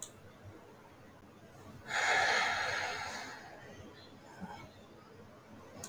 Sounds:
Sigh